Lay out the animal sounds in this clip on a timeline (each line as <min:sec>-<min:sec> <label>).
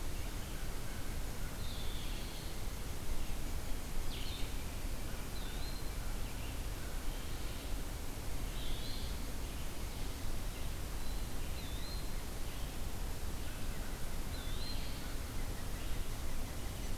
0:00.3-0:01.8 American Crow (Corvus brachyrhynchos)
0:01.5-0:02.7 Red-eyed Vireo (Vireo olivaceus)
0:03.9-0:04.6 Red-eyed Vireo (Vireo olivaceus)
0:05.0-0:07.2 American Crow (Corvus brachyrhynchos)
0:05.3-0:06.1 Eastern Wood-Pewee (Contopus virens)
0:08.4-0:09.2 Eastern Wood-Pewee (Contopus virens)
0:11.5-0:12.3 Eastern Wood-Pewee (Contopus virens)
0:12.3-0:17.0 Red-eyed Vireo (Vireo olivaceus)
0:13.2-0:17.0 unidentified call
0:13.3-0:14.8 American Crow (Corvus brachyrhynchos)
0:14.2-0:14.9 Eastern Wood-Pewee (Contopus virens)
0:14.5-0:15.2 Gray Catbird (Dumetella carolinensis)